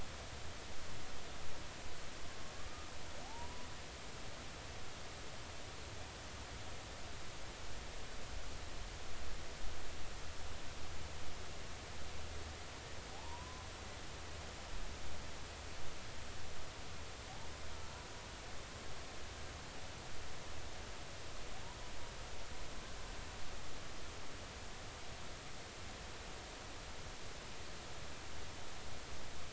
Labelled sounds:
2.3	3.7	humpback whale, 0.80 to 1.1 kHz
13.1	13.7	humpback whale, 0.80 to 1.2 kHz

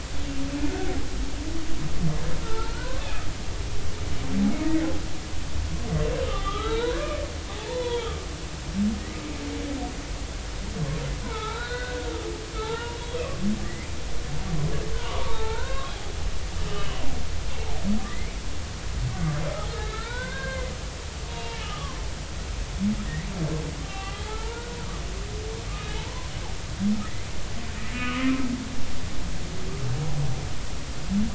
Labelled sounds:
2.4	3.1	humpback whale, 0.83 to 1.6 kHz
6.2	7.1	humpback whale, 0.86 to 4.0 kHz
7.5	8.2	humpback whale, 0.80 to 3.6 kHz
11.2	12.0	humpback whale, 0.83 to 4.3 kHz
12.5	13.2	humpback whale, 0.83 to 3.4 kHz
13.6	13.9	humpback whale, 1.8 to 2.2 kHz
15.1	17.0	humpback whale, 0.83 to 3.1 kHz
18.0	18.4	humpback whale, 1.7 to 2.4 kHz
19.7	20.7	humpback whale, 0.86 to 4.2 kHz
21.3	22.0	humpback whale, 0.86 to 1.3 kHz
23.8	24.8	humpback whale, 0.80 to 3.2 kHz
26.0	26.3	humpback whale, 0.83 to 1.1 kHz
27.9	28.2	humpback whale, 1.1 to 2.9 kHz

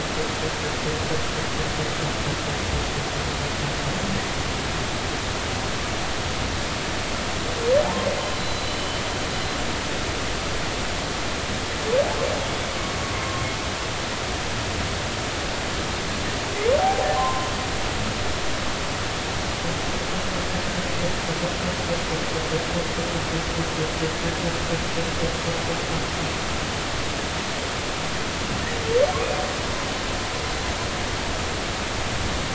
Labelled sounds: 7.8	9.0	humpback whale, 0.80 to 4.1 kHz
12.4	12.7	humpback whale, 3.2 to 3.5 kHz
16.8	17.5	humpback whale, 0.80 to 1.1 kHz

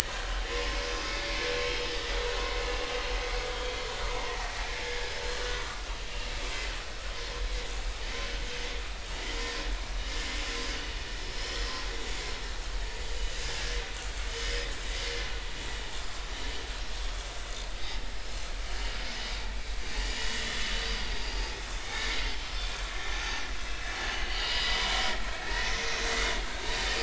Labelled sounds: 0.5	0.8	vessel noise, 0.99 to 1.1 kHz
4.3	4.5	vessel noise, 1.8 to 2.0 kHz
5.4	5.8	vessel noise, 1.3 to 1.5 kHz
9.4	9.7	vessel noise, 4.7 to 5.0 kHz
20.2	20.5	vessel noise, 3.3 to 3.5 kHz
21.2	21.6	vessel noise, 2.4 to 4.9 kHz
22.2	22.5	vessel noise, 3.0 to 3.3 kHz
23.1	23.4	vessel noise, 6.0 to 6.5 kHz
24.1	24.9	vessel noise, 2.8 to 6.0 kHz
25.4	25.9	vessel noise, 1.6 to 2.2 kHz

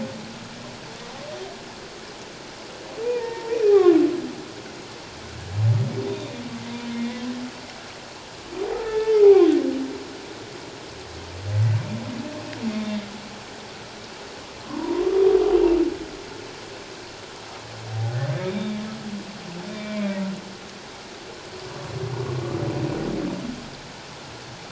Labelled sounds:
3.0	4.0	humpback whale, 0.78 to 2.6 kHz
6.1	7.2	humpback whale, 1.8 to 3.8 kHz
8.8	9.5	humpback whale, 0.78 to 2.2 kHz
12.7	13.1	humpback whale, 3.4 to 3.7 kHz
14.7	15.1	humpback whale, 0.88 to 1.2 kHz
17.9	18.8	humpback whale, 0.78 to 3.8 kHz
19.7	20.1	humpback whale, 2.1 to 2.4 kHz

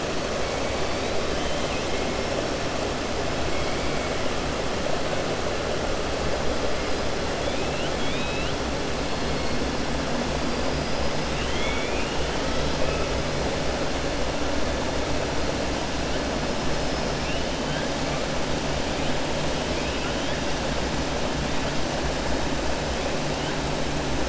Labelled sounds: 1.4	1.9	killer whale, 2.1 to 3.2 kHz
7.4	8.6	killer whale, 2.2 to 4.1 kHz
11.3	12.6	killer whale, 1.3 to 3.7 kHz

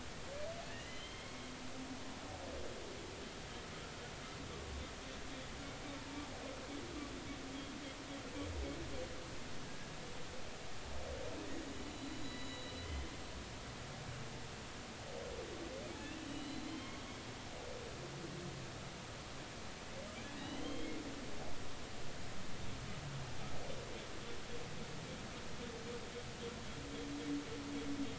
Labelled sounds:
0.8	1.5	humpback whale, 2.0 to 3.3 kHz
11.7	13.1	humpback whale, 3.0 to 7.0 kHz
16.3	17.0	humpback whale, 2.8 to 4.2 kHz
20.4	21.0	humpback whale, 2.1 to 3.3 kHz

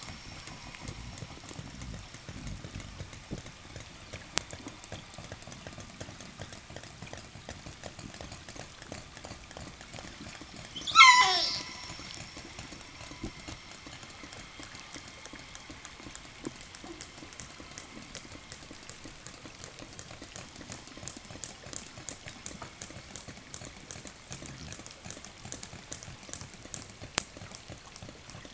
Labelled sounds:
10.6	11.8	killer whale, southern resident, 0 to 8.0 kHz
20.7	28.5	killer whale, 1.1 to 8.0 kHz

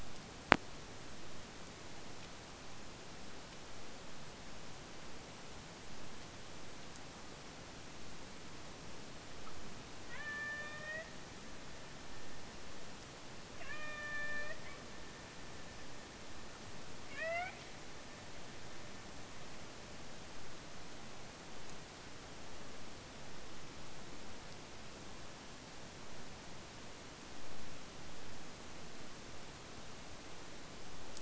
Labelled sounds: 10.0	11.2	killer whale, Bigg's (transient), AT1 transient, 0.51 to 5.1 kHz
13.6	14.7	killer whale, Bigg's (transient), AT1 transient, 0.44 to 5.1 kHz
17.1	17.6	killer whale, Bigg's (transient), AT1 transient, 0.51 to 5.8 kHz

